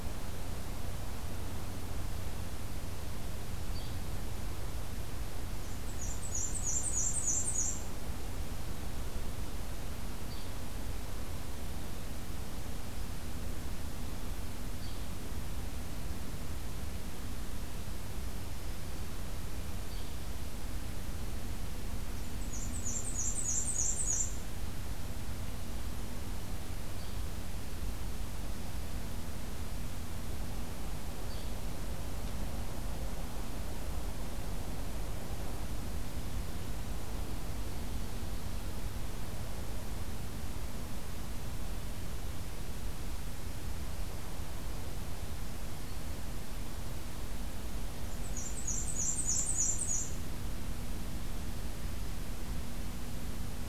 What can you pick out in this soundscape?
Yellow-bellied Flycatcher, Black-and-white Warbler, Black-throated Green Warbler